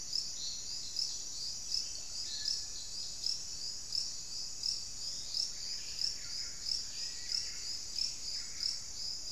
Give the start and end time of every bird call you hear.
[2.20, 2.60] unidentified bird
[5.00, 5.70] Forest Elaenia (Myiopagis gaimardii)
[5.40, 9.30] Buff-breasted Wren (Cantorchilus leucotis)
[6.70, 7.60] Black-faced Cotinga (Conioptilon mcilhennyi)

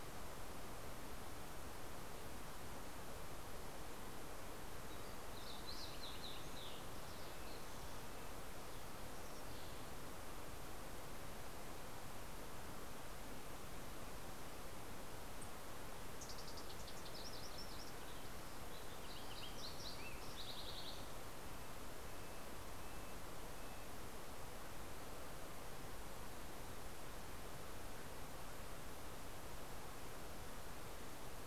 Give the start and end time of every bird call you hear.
[5.13, 7.43] Fox Sparrow (Passerella iliaca)
[7.03, 8.83] Red-breasted Nuthatch (Sitta canadensis)
[15.23, 21.23] Fox Sparrow (Passerella iliaca)
[20.93, 24.23] Red-breasted Nuthatch (Sitta canadensis)

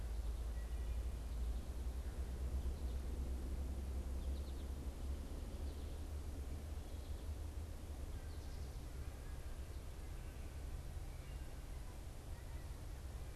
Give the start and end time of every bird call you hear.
[3.89, 8.79] American Goldfinch (Spinus tristis)

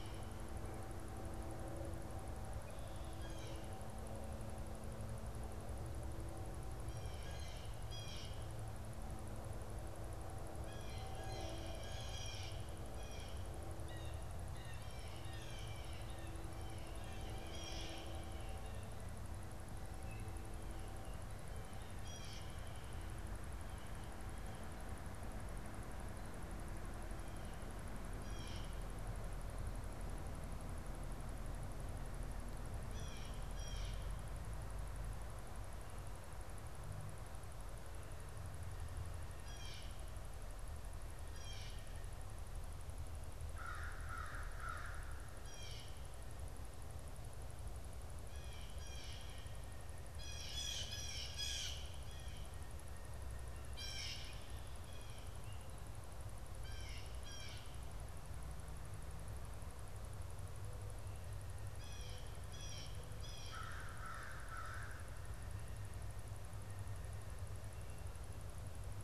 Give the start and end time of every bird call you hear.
[0.00, 8.75] Blue Jay (Cyanocitta cristata)
[10.25, 22.65] Blue Jay (Cyanocitta cristata)
[28.05, 28.85] Blue Jay (Cyanocitta cristata)
[32.75, 34.25] Blue Jay (Cyanocitta cristata)
[39.15, 42.05] Blue Jay (Cyanocitta cristata)
[43.25, 45.55] American Crow (Corvus brachyrhynchos)
[45.25, 63.65] Blue Jay (Cyanocitta cristata)
[63.35, 65.35] American Crow (Corvus brachyrhynchos)

